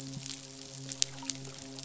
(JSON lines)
{"label": "biophony, midshipman", "recorder": "SoundTrap 500"}